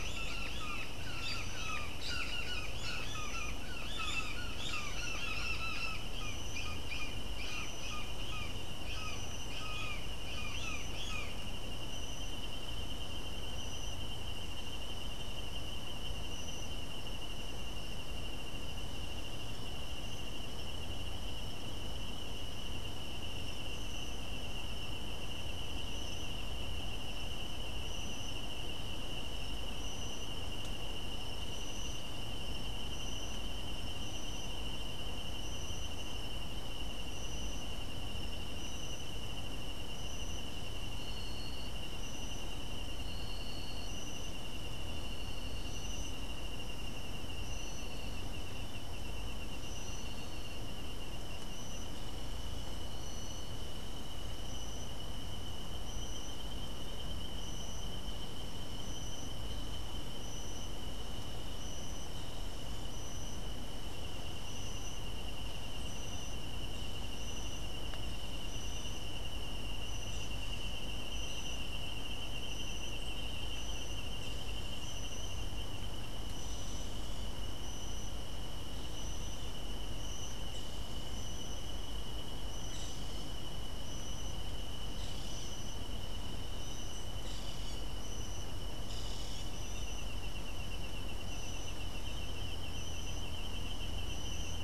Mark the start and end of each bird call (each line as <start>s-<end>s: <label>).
0.0s-11.4s: Brown Jay (Psilorhinus morio)
87.2s-89.6s: Boat-billed Flycatcher (Megarynchus pitangua)